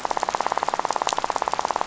{"label": "biophony, rattle", "recorder": "SoundTrap 500"}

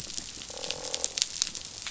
{"label": "biophony, croak", "recorder": "SoundTrap 500"}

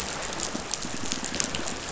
{"label": "biophony", "recorder": "SoundTrap 500"}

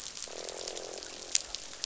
{"label": "biophony, croak", "recorder": "SoundTrap 500"}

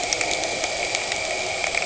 {"label": "anthrophony, boat engine", "recorder": "HydroMoth"}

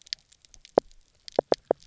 {"label": "biophony, knock croak", "recorder": "SoundTrap 300"}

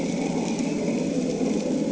{"label": "anthrophony, boat engine", "recorder": "HydroMoth"}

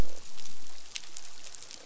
{"label": "biophony, croak", "recorder": "SoundTrap 500"}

